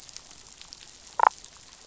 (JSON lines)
{"label": "biophony, damselfish", "recorder": "SoundTrap 500"}